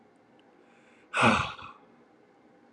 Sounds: Sigh